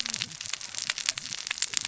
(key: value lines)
label: biophony, cascading saw
recorder: SoundTrap 600 or HydroMoth